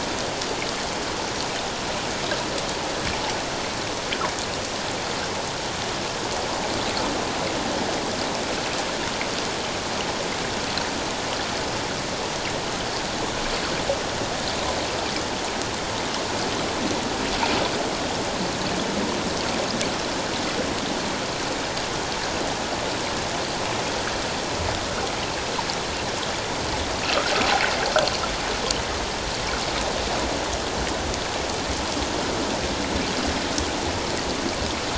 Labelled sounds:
27.0	27.3	water noise, 1.2 to 1.6 kHz

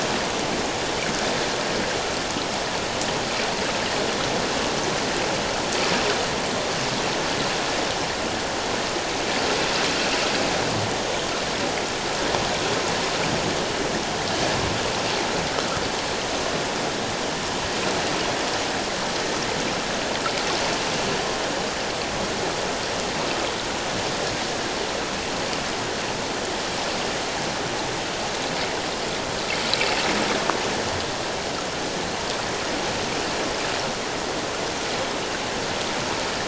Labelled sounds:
29.8	30.1	water noise, 2.6 to 2.8 kHz

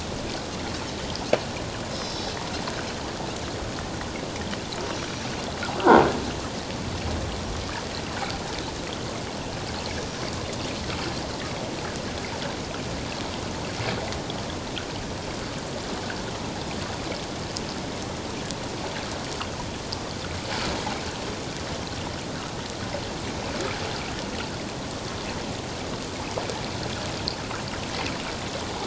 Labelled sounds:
1.9	2.3	Pacific white-sided dolphin, 3.8 to 6.1 kHz
4.9	5.2	Pacific white-sided dolphin, 5.7 to 5.9 kHz
10.0	10.2	Pacific white-sided dolphin, 5.7 to 6.0 kHz

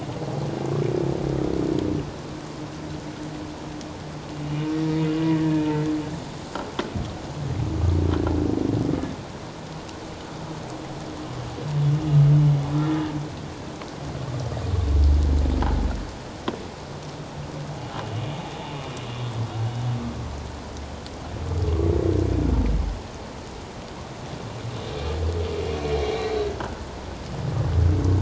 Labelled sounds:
4.5	5.7	humpback whale, 1.7 to 3.0 kHz
26.6	26.8	humpback whale, 1.3 to 1.7 kHz

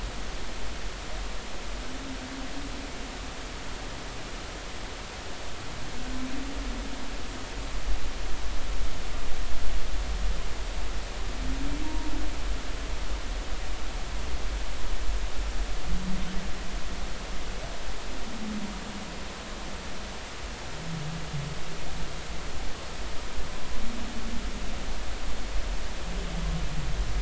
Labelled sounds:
11.8	12.1	humpback whale, 0.90 to 1.1 kHz

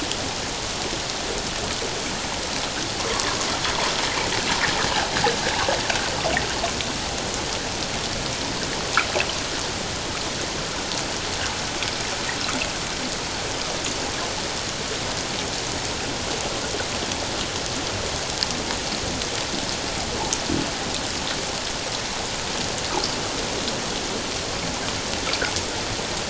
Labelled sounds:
3.1	3.4	water noise, 0.97 to 1.2 kHz

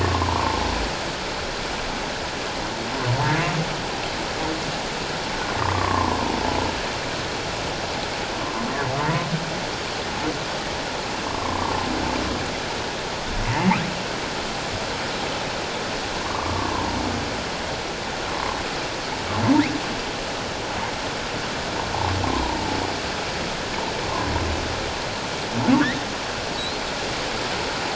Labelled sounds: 0.0	0.6	humpback whale, 0.84 to 1.2 kHz
5.6	6.2	humpback whale, 0.84 to 1.2 kHz
8.4	9.3	humpback whale, 0.88 to 1.2 kHz
11.3	11.6	humpback whale, 0.94 to 1.2 kHz
16.2	16.7	humpback whale, 0.88 to 1.2 kHz
18.3	18.6	humpback whale, 0.91 to 1.2 kHz
22.2	22.8	humpback whale, 0.78 to 1.1 kHz
26.6	26.8	humpback whale, 3.8 to 4.3 kHz

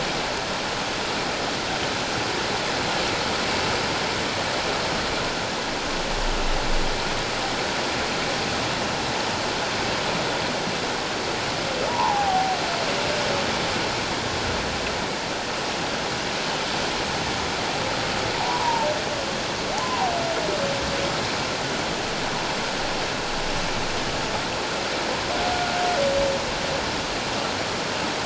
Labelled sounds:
11.9	12.6	humpback whale, 0.78 to 1.1 kHz
18.3	18.9	humpback whale, 0.78 to 1.1 kHz
19.8	20.1	humpback whale, 0.91 to 1.1 kHz

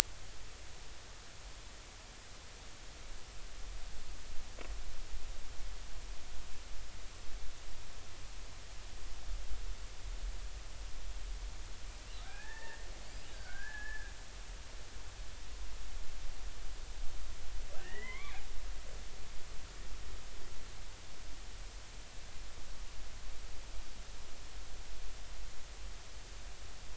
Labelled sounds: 12.2	12.9	killer whale, Bigg's (transient), 0.80 to 1.9 kHz
13.3	14.1	killer whale, Bigg's (transient), 1.4 to 1.8 kHz
17.8	18.4	killer whale, Bigg's (transient), 0.96 to 3.6 kHz

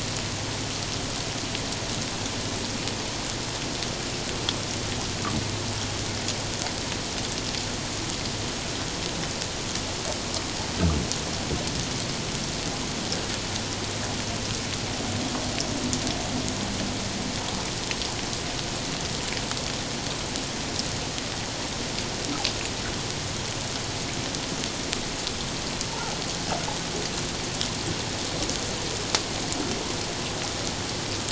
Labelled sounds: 25.9	26.2	humpback whale, 0.78 to 1.1 kHz

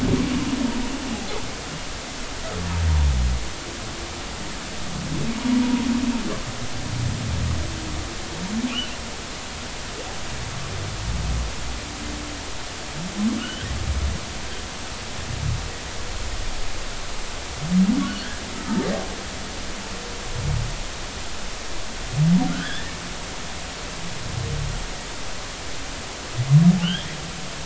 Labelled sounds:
5.6	5.9	humpback whale, 0.90 to 1.1 kHz
8.7	9.0	humpback whale, 2.4 to 3.1 kHz
13.4	13.7	humpback whale, 2.8 to 3.3 kHz
22.6	22.9	humpback whale, 3.1 to 3.6 kHz
23.5	23.9	humpback whale, 1.3 to 2.0 kHz
26.8	27.1	humpback whale, 2.6 to 3.6 kHz

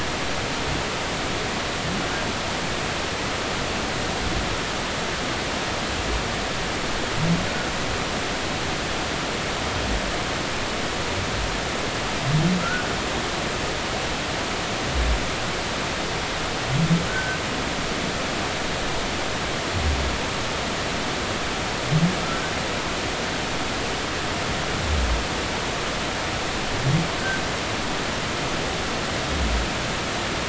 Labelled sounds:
12.6	12.9	humpback whale, 1.2 to 1.5 kHz
17.1	17.4	humpback whale, 1.4 to 1.6 kHz
27.2	27.4	humpback whale, 1.5 to 1.6 kHz

